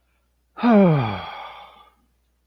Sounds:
Sigh